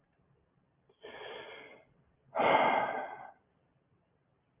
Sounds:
Sigh